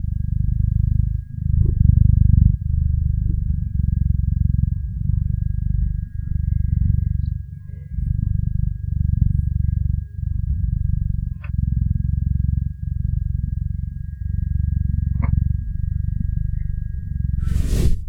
Is there a motor running?
yes